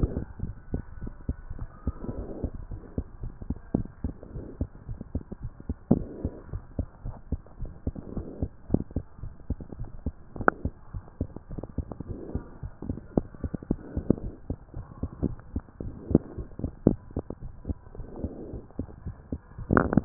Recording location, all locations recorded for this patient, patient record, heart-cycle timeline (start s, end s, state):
tricuspid valve (TV)
aortic valve (AV)+pulmonary valve (PV)+tricuspid valve (TV)+mitral valve (MV)
#Age: Child
#Sex: Female
#Height: 100.0 cm
#Weight: 19.8 kg
#Pregnancy status: False
#Murmur: Absent
#Murmur locations: nan
#Most audible location: nan
#Systolic murmur timing: nan
#Systolic murmur shape: nan
#Systolic murmur grading: nan
#Systolic murmur pitch: nan
#Systolic murmur quality: nan
#Diastolic murmur timing: nan
#Diastolic murmur shape: nan
#Diastolic murmur grading: nan
#Diastolic murmur pitch: nan
#Diastolic murmur quality: nan
#Outcome: Normal
#Campaign: 2015 screening campaign
0.00	0.28	unannotated
0.28	0.42	diastole
0.42	0.56	S1
0.56	0.72	systole
0.72	0.84	S2
0.84	1.02	diastole
1.02	1.14	S1
1.14	1.24	systole
1.24	1.38	S2
1.38	1.56	diastole
1.56	1.68	S1
1.68	1.82	systole
1.82	1.96	S2
1.96	2.16	diastole
2.16	2.30	S1
2.30	2.42	systole
2.42	2.52	S2
2.52	2.68	diastole
2.68	2.80	S1
2.80	2.94	systole
2.94	3.06	S2
3.06	3.22	diastole
3.22	3.34	S1
3.34	3.48	systole
3.48	3.58	S2
3.58	3.72	diastole
3.72	3.86	S1
3.86	4.00	systole
4.00	4.14	S2
4.14	4.34	diastole
4.34	4.46	S1
4.46	4.56	systole
4.56	4.68	S2
4.68	4.88	diastole
4.88	5.00	S1
5.00	5.14	systole
5.14	5.22	S2
5.22	5.42	diastole
5.42	5.52	S1
5.52	5.66	systole
5.66	5.76	S2
5.76	5.92	diastole
5.92	6.08	S1
6.08	6.22	systole
6.22	6.34	S2
6.34	6.52	diastole
6.52	6.62	S1
6.62	6.76	systole
6.76	6.86	S2
6.86	7.04	diastole
7.04	7.16	S1
7.16	7.28	systole
7.28	7.42	S2
7.42	7.60	diastole
7.60	7.74	S1
7.74	7.88	systole
7.88	7.96	S2
7.96	8.12	diastole
8.12	8.26	S1
8.26	8.40	systole
8.40	8.52	S2
8.52	8.70	diastole
8.70	8.86	S1
8.86	8.92	systole
8.92	9.04	S2
9.04	9.24	diastole
9.24	9.34	S1
9.34	9.46	systole
9.46	9.58	S2
9.58	9.78	diastole
9.78	9.90	S1
9.90	10.02	systole
10.02	10.14	S2
10.14	10.36	diastole
10.36	10.52	S1
10.52	10.62	systole
10.62	10.76	S2
10.76	10.94	diastole
10.94	11.04	S1
11.04	11.18	systole
11.18	11.32	S2
11.32	11.52	diastole
11.52	11.62	S1
11.62	11.76	systole
11.76	11.90	S2
11.90	12.08	diastole
12.08	12.22	S1
12.22	12.34	systole
12.34	12.46	S2
12.46	12.64	diastole
12.64	12.72	S1
12.72	12.86	systole
12.86	12.98	S2
12.98	13.14	diastole
13.14	13.26	S1
13.26	13.40	systole
13.40	13.52	S2
13.52	13.68	diastole
13.68	13.78	S1
13.78	13.92	systole
13.92	14.08	S2
14.08	14.22	diastole
14.22	14.34	S1
14.34	14.46	systole
14.46	14.58	S2
14.58	14.76	diastole
14.76	14.86	S1
14.86	14.98	systole
14.98	15.10	S2
15.10	15.24	diastole
15.24	15.38	S1
15.38	15.52	systole
15.52	15.66	S2
15.66	15.84	diastole
15.84	15.96	S1
15.96	16.08	systole
16.08	16.22	S2
16.22	16.36	diastole
16.36	16.48	S1
16.48	16.60	systole
16.60	16.72	S2
16.72	16.86	diastole
16.86	17.00	S1
17.00	17.12	systole
17.12	17.24	S2
17.24	17.44	diastole
17.44	17.52	S1
17.52	17.66	systole
17.66	17.82	S2
17.82	17.98	diastole
17.98	18.08	S1
18.08	18.20	systole
18.20	18.34	S2
18.34	18.50	diastole
18.50	18.64	S1
18.64	18.78	systole
18.78	18.88	S2
18.88	19.04	diastole
19.04	19.16	S1
19.16	19.32	systole
19.32	19.46	S2
19.46	19.70	diastole
19.70	20.05	unannotated